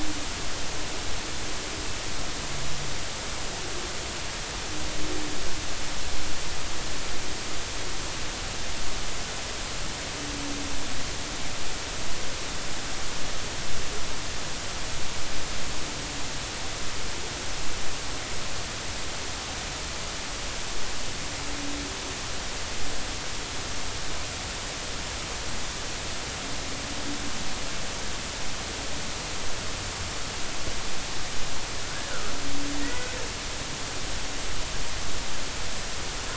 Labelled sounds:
31.8	32.1	humpback whale, 1.3 to 1.8 kHz
32.8	33.1	humpback whale, 1.8 to 2.0 kHz

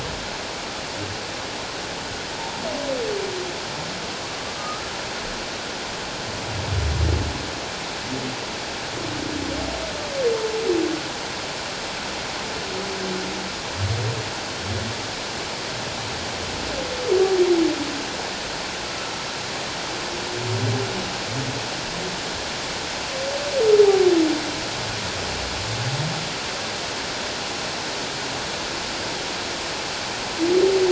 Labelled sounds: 4.5	4.8	humpback whale, 1.2 to 1.3 kHz

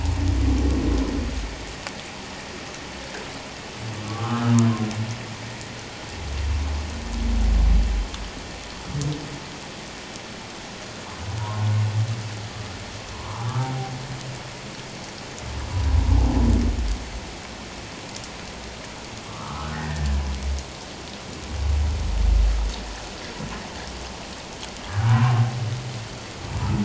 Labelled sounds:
4.0	4.7	humpback whale, 1.0 to 1.4 kHz
11.4	11.7	humpback whale, 0.91 to 1.1 kHz
13.1	13.7	humpback whale, 0.78 to 1.4 kHz
19.3	20.2	humpback whale, 0.88 to 2.0 kHz
24.9	25.4	humpback whale, 0.91 to 1.8 kHz

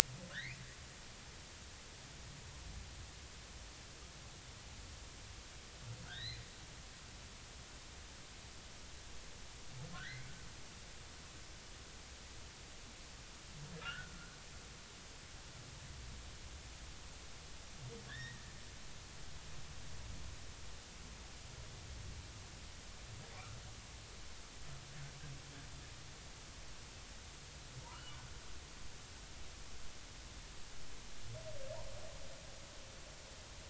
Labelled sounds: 0.3	0.6	humpback whale, 1.2 to 2.6 kHz
6.0	6.4	humpback whale, 1.3 to 4.3 kHz
9.9	10.3	humpback whale, 1.2 to 2.3 kHz
13.8	14.1	humpback whale, 1.2 to 1.9 kHz
18.1	18.4	humpback whale, 1.5 to 3.9 kHz
27.8	28.2	humpback whale, 0.86 to 3.0 kHz

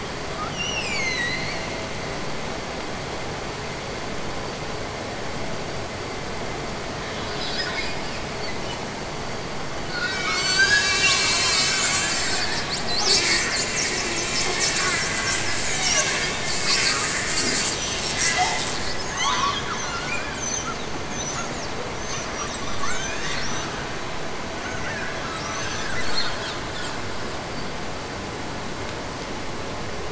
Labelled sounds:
0.4	1.7	killer whale, Bigg's (transient), Gulf of Alaska transient, 1.7 to 8.0 kHz

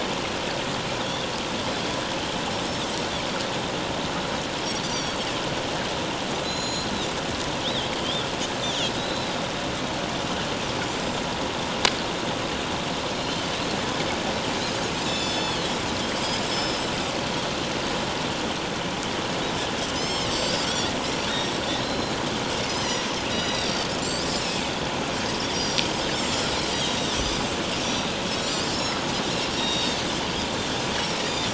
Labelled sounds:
1.0	1.3	Pacific white-sided dolphin, 3.2 to 3.7 kHz
4.8	5.2	Pacific white-sided dolphin, 4.4 to 6.1 kHz
6.4	6.9	Pacific white-sided dolphin, 3.9 to 6.9 kHz
7.6	8.3	Pacific white-sided dolphin, 2.9 to 4.0 kHz
8.6	9.3	Pacific white-sided dolphin, 2.6 to 4.0 kHz
13.3	13.6	Pacific white-sided dolphin, 6.0 to 6.2 kHz
15.1	15.7	Pacific white-sided dolphin, 2.6 to 8.0 kHz
16.4	16.9	Pacific white-sided dolphin, 4.8 to 5.4 kHz
19.9	20.9	Pacific white-sided dolphin, 2.0 to 7.6 kHz
21.8	22.1	Pacific white-sided dolphin, 4.0 to 5.5 kHz
22.8	24.4	Pacific white-sided dolphin, 3.4 to 6.0 kHz
25.5	27.2	Pacific white-sided dolphin, 3.5 to 7.7 kHz
27.9	29.0	Pacific white-sided dolphin, 3.8 to 7.5 kHz
29.5	30.0	Pacific white-sided dolphin, 2.8 to 5.8 kHz
31.0	31.5	Pacific white-sided dolphin, 3.4 to 5.7 kHz

